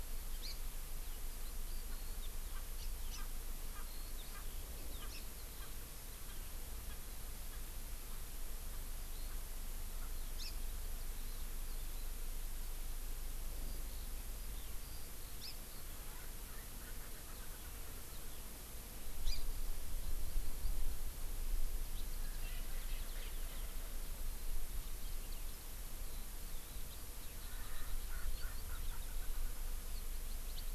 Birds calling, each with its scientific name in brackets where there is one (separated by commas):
Erckel's Francolin (Pternistis erckelii), Eurasian Skylark (Alauda arvensis), Hawaii Amakihi (Chlorodrepanis virens)